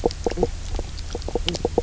{"label": "biophony, knock croak", "recorder": "SoundTrap 300"}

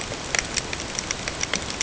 {"label": "ambient", "recorder": "HydroMoth"}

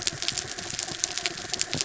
{"label": "anthrophony, mechanical", "recorder": "SoundTrap 300"}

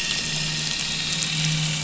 {"label": "anthrophony, boat engine", "recorder": "SoundTrap 500"}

